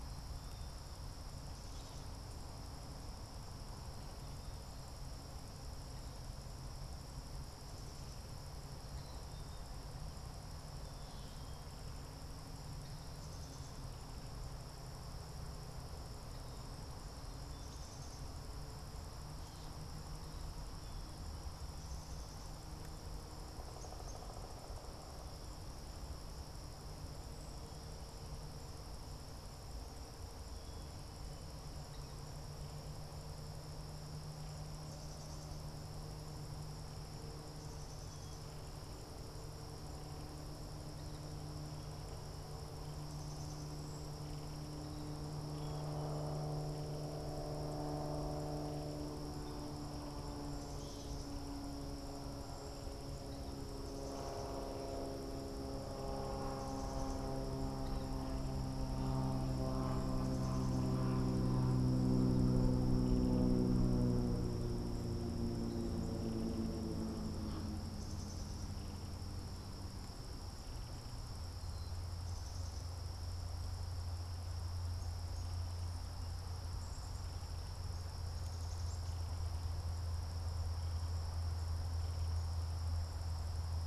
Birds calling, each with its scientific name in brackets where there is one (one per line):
Black-capped Chickadee (Poecile atricapillus)
Gray Catbird (Dumetella carolinensis)
Cedar Waxwing (Bombycilla cedrorum)
Pileated Woodpecker (Dryocopus pileatus)